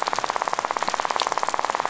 {"label": "biophony, rattle", "recorder": "SoundTrap 500"}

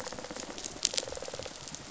{"label": "biophony, rattle response", "recorder": "SoundTrap 500"}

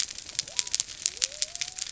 {"label": "biophony", "recorder": "SoundTrap 300"}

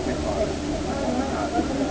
{"label": "ambient", "recorder": "HydroMoth"}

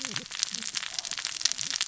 {"label": "biophony, cascading saw", "recorder": "SoundTrap 600 or HydroMoth"}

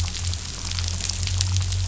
{"label": "anthrophony, boat engine", "recorder": "SoundTrap 500"}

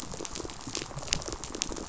{"label": "biophony, pulse", "recorder": "SoundTrap 500"}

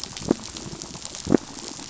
{"label": "biophony", "recorder": "SoundTrap 500"}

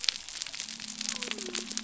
{"label": "biophony", "recorder": "SoundTrap 300"}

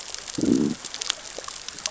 {"label": "biophony, growl", "recorder": "SoundTrap 600 or HydroMoth"}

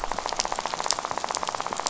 {"label": "biophony, rattle", "recorder": "SoundTrap 500"}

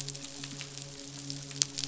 {"label": "biophony, midshipman", "recorder": "SoundTrap 500"}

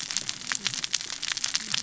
{"label": "biophony, cascading saw", "recorder": "SoundTrap 600 or HydroMoth"}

